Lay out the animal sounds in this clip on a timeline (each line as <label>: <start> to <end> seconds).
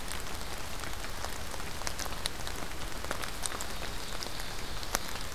Ovenbird (Seiurus aurocapilla): 3.4 to 5.3 seconds